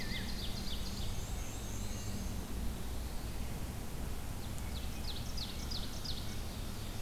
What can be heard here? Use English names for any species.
Ovenbird, Black-and-white Warbler, Black-throated Blue Warbler